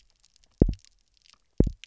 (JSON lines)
{"label": "biophony, double pulse", "recorder": "SoundTrap 300"}